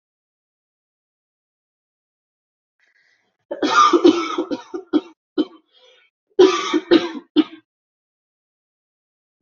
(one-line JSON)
{"expert_labels": [{"quality": "ok", "cough_type": "dry", "dyspnea": false, "wheezing": false, "stridor": false, "choking": false, "congestion": false, "nothing": true, "diagnosis": "upper respiratory tract infection", "severity": "mild"}], "age": 32, "gender": "female", "respiratory_condition": false, "fever_muscle_pain": true, "status": "symptomatic"}